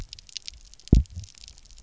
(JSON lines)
{"label": "biophony, double pulse", "recorder": "SoundTrap 300"}